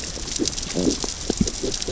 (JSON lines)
{"label": "biophony, growl", "recorder": "SoundTrap 600 or HydroMoth"}